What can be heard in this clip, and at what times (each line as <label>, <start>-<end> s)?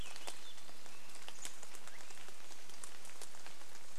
Chestnut-backed Chickadee call, 0-2 s
Swainson's Thrush song, 0-2 s
rain, 0-4 s